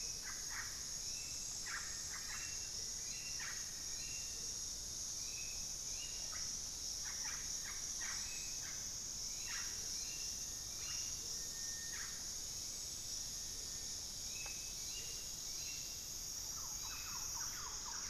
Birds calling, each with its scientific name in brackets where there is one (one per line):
Russet-backed Oropendola (Psarocolius angustifrons)
Amazonian Motmot (Momotus momota)
Hauxwell's Thrush (Turdus hauxwelli)
Thrush-like Wren (Campylorhynchus turdinus)